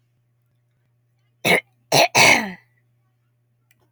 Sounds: Throat clearing